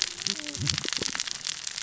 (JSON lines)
{"label": "biophony, cascading saw", "recorder": "SoundTrap 600 or HydroMoth"}